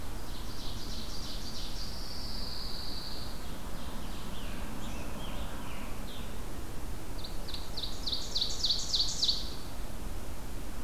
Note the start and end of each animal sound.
[0.00, 2.03] Ovenbird (Seiurus aurocapilla)
[1.55, 3.50] Pine Warbler (Setophaga pinus)
[3.12, 4.55] Ovenbird (Seiurus aurocapilla)
[4.08, 6.62] Scarlet Tanager (Piranga olivacea)
[7.08, 9.76] Ovenbird (Seiurus aurocapilla)

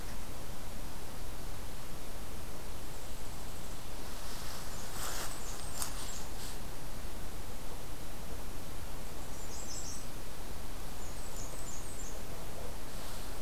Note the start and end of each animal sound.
[4.63, 6.27] Blackburnian Warbler (Setophaga fusca)
[9.05, 10.09] American Redstart (Setophaga ruticilla)
[10.84, 12.26] Blackburnian Warbler (Setophaga fusca)

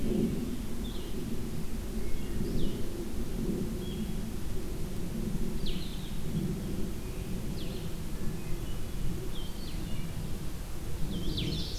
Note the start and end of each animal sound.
[0.00, 0.52] Hermit Thrush (Catharus guttatus)
[0.00, 11.79] Blue-headed Vireo (Vireo solitarius)
[1.77, 2.62] Hermit Thrush (Catharus guttatus)
[8.06, 9.23] Hermit Thrush (Catharus guttatus)
[11.03, 11.79] Ovenbird (Seiurus aurocapilla)

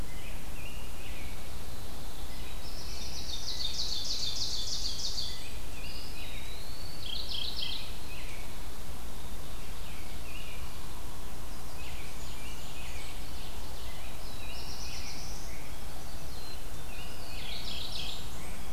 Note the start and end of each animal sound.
[0.00, 1.35] American Robin (Turdus migratorius)
[0.95, 2.57] Pine Warbler (Setophaga pinus)
[2.09, 4.45] American Robin (Turdus migratorius)
[2.48, 3.72] Black-throated Blue Warbler (Setophaga caerulescens)
[3.31, 5.38] Ovenbird (Seiurus aurocapilla)
[5.14, 6.57] American Robin (Turdus migratorius)
[5.72, 7.18] Eastern Wood-Pewee (Contopus virens)
[6.96, 7.97] Mourning Warbler (Geothlypis philadelphia)
[7.44, 8.46] American Robin (Turdus migratorius)
[9.38, 10.65] American Robin (Turdus migratorius)
[11.65, 13.17] Blackburnian Warbler (Setophaga fusca)
[11.69, 13.20] American Robin (Turdus migratorius)
[11.74, 13.93] Ovenbird (Seiurus aurocapilla)
[13.71, 15.91] American Robin (Turdus migratorius)
[14.00, 15.73] Black-throated Blue Warbler (Setophaga caerulescens)
[15.62, 16.47] Chestnut-sided Warbler (Setophaga pensylvanica)
[16.16, 17.12] Black-capped Chickadee (Poecile atricapillus)
[16.86, 17.66] Eastern Wood-Pewee (Contopus virens)
[17.24, 18.37] Mourning Warbler (Geothlypis philadelphia)
[17.38, 18.73] Blackburnian Warbler (Setophaga fusca)

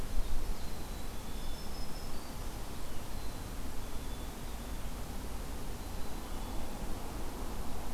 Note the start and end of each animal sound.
[0.49, 1.86] Black-capped Chickadee (Poecile atricapillus)
[1.29, 2.51] Black-throated Green Warbler (Setophaga virens)
[3.09, 4.39] Black-capped Chickadee (Poecile atricapillus)
[5.73, 6.90] Black-capped Chickadee (Poecile atricapillus)

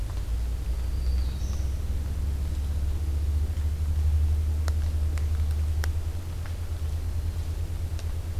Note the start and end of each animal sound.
[0.55, 1.87] Black-throated Green Warbler (Setophaga virens)

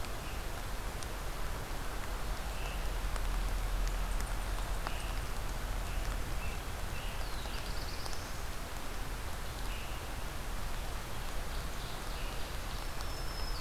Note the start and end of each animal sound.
[0.00, 5.27] Scarlet Tanager (Piranga olivacea)
[3.90, 5.48] Eastern Chipmunk (Tamias striatus)
[5.70, 7.83] Scarlet Tanager (Piranga olivacea)
[6.96, 8.82] Black-throated Blue Warbler (Setophaga caerulescens)
[9.50, 13.61] Scarlet Tanager (Piranga olivacea)
[10.96, 13.11] Ovenbird (Seiurus aurocapilla)
[12.53, 13.61] Black-throated Green Warbler (Setophaga virens)

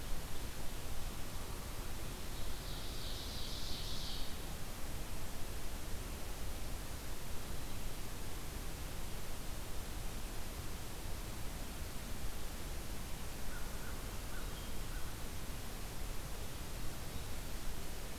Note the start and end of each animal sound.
[2.10, 4.31] Ovenbird (Seiurus aurocapilla)
[13.27, 15.10] American Crow (Corvus brachyrhynchos)

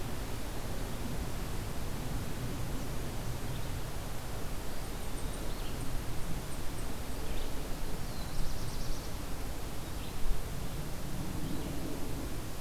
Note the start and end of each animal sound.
[4.54, 5.71] Eastern Wood-Pewee (Contopus virens)
[7.85, 9.20] Black-throated Blue Warbler (Setophaga caerulescens)

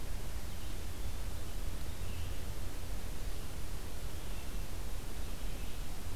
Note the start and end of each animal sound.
[0.00, 6.15] Blue-headed Vireo (Vireo solitarius)

